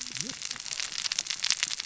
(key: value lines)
label: biophony, cascading saw
recorder: SoundTrap 600 or HydroMoth